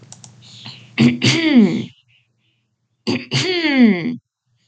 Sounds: Throat clearing